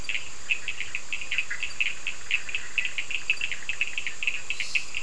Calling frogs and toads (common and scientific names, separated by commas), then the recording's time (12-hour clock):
Bischoff's tree frog (Boana bischoffi), Cochran's lime tree frog (Sphaenorhynchus surdus)
10:15pm